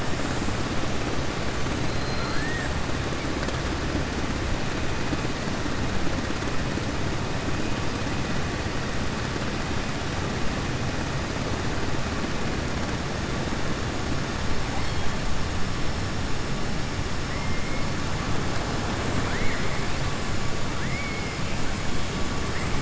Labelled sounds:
1.9	2.7	killer whale, southern resident, 1.2 to 4.8 kHz
20.8	21.2	killer whale, southern resident, 1.7 to 2.3 kHz

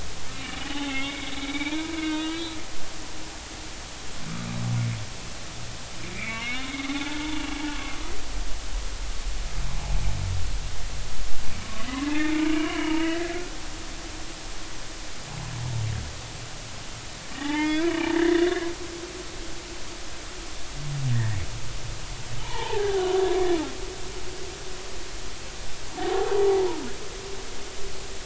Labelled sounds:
0.4	3.0	humpback whale, 0.80 to 4.1 kHz
6.1	7.3	humpback whale, 0.80 to 3.7 kHz
12.0	13.4	humpback whale, 0.86 to 3.0 kHz
17.3	18.7	humpback whale, 0.80 to 3.7 kHz
21.1	21.4	humpback whale, 1.6 to 2.0 kHz
22.4	23.2	humpback whale, 0.80 to 3.2 kHz
26.0	26.3	humpback whale, 0.80 to 0.93 kHz

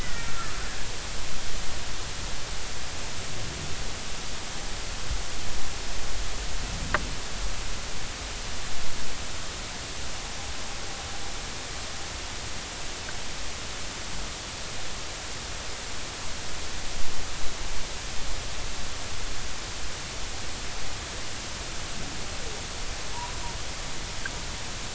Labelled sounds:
0.0	0.5	humpback whale, 1.2 to 2.0 kHz

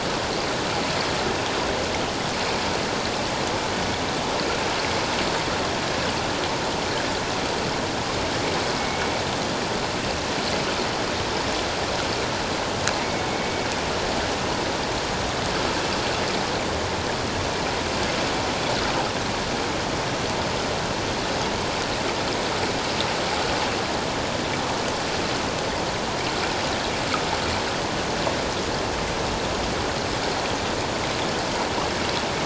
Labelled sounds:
13.3	13.7	killer whale, 2.2 to 2.3 kHz

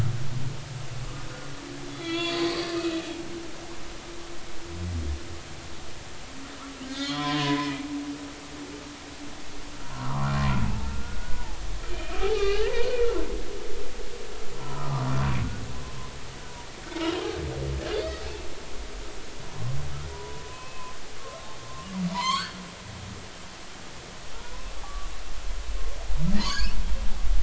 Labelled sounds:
1.9	3.7	humpback whale, 1.3 to 6.5 kHz
6.8	7.9	humpback whale, 0.93 to 4.4 kHz
9.8	13.2	humpback whale, 0.80 to 3.2 kHz
14.6	15.0	humpback whale, 0.93 to 1.4 kHz
18.0	18.2	humpback whale, 4.3 to 4.5 kHz
19.5	20.9	humpback whale, 0.93 to 2.7 kHz
21.7	22.6	humpback whale, 0.90 to 4.7 kHz
24.3	25.1	humpback whale, 0.90 to 1.2 kHz
26.4	26.8	humpback whale, 4.3 to 6.9 kHz

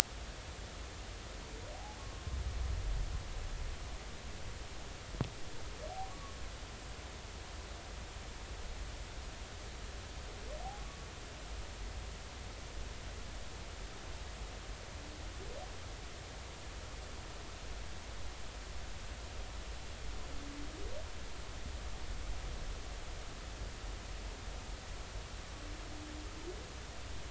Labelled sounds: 6.1	6.4	humpback whale, 1.1 to 1.2 kHz

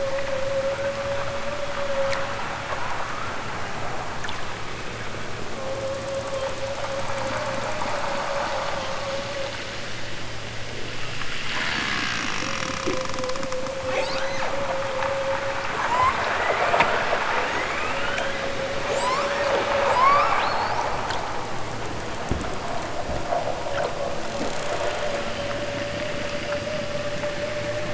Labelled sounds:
13.8	14.6	killer whale, southern Alaska resident, 0.60 to 8.0 kHz
15.7	17.0	killer whale, southern Alaska resident, 0.51 to 8.0 kHz
17.4	18.5	killer whale, southern Alaska resident, 0.83 to 8.0 kHz
18.9	20.5	killer whale, southern Alaska resident, 0.69 to 8.0 kHz
24.7	25.6	killer whale, southern Alaska resident, 1.1 to 5.4 kHz

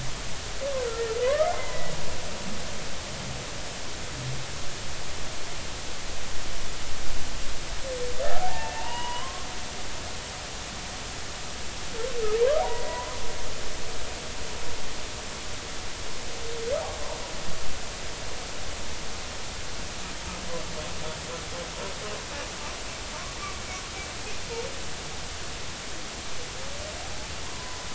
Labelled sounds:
1.2	1.9	humpback whale, 0.96 to 2.1 kHz
2.5	2.8	humpback whale, 0.86 to 1.1 kHz
8.3	9.5	humpback whale, 0.80 to 3.2 kHz
12.6	13.1	humpback whale, 0.90 to 2.0 kHz

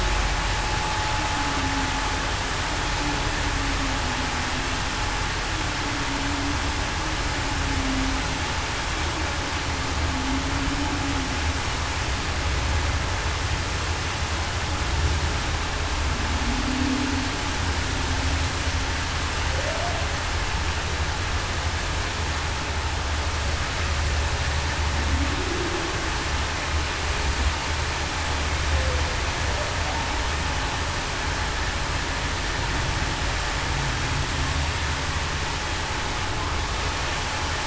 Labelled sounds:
7.8	8.1	humpback whale, 0.21 to 0.28 kHz
16.6	17.0	humpback whale, 0.23 to 0.30 kHz
19.6	19.9	humpback whale, 0.52 to 0.73 kHz
25.3	25.9	humpback whale, 0.30 to 0.47 kHz

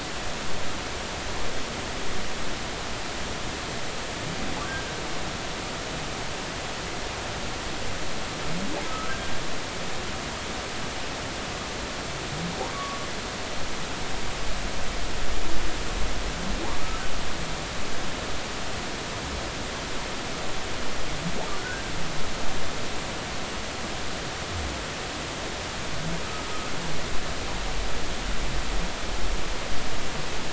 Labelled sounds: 8.9	9.1	humpback whale, 1.2 to 1.4 kHz
12.7	13.0	humpback whale, 1.1 to 1.2 kHz
21.6	21.9	humpback whale, 1.4 to 1.7 kHz

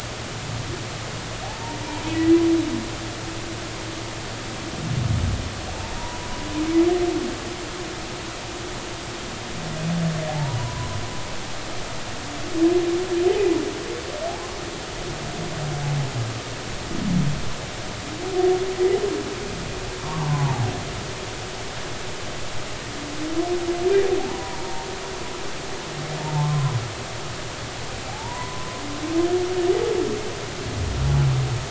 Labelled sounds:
1.4	2.4	humpback whale, 0.80 to 2.1 kHz
6.0	6.3	humpback whale, 0.90 to 1.0 kHz
10.3	10.9	humpback whale, 0.80 to 1.1 kHz
20.0	20.7	humpback whale, 0.80 to 1.2 kHz
24.3	24.9	humpback whale, 0.86 to 1.0 kHz
26.2	26.8	humpback whale, 0.83 to 1.2 kHz
28.1	28.8	humpback whale, 0.80 to 1.1 kHz

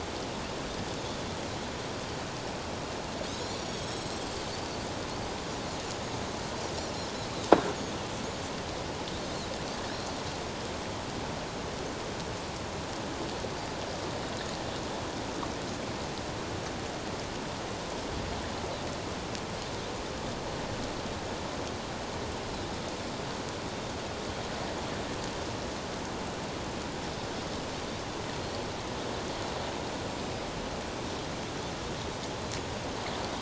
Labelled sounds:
3.3	4.5	Pacific white-sided dolphin, 3.6 to 8.0 kHz

